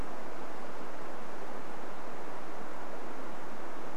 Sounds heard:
forest ambience